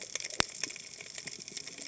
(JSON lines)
{"label": "biophony, cascading saw", "recorder": "HydroMoth"}